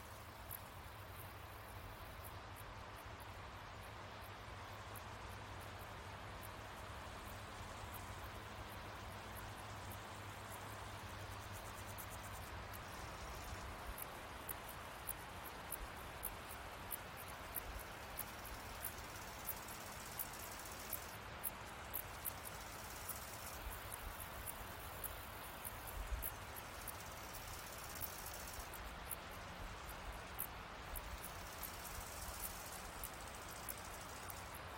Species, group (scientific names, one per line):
Pholidoptera griseoaptera
Orthoptera